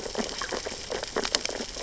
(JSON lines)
{"label": "biophony, sea urchins (Echinidae)", "recorder": "SoundTrap 600 or HydroMoth"}